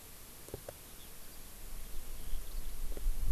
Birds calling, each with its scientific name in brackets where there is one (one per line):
Eurasian Skylark (Alauda arvensis)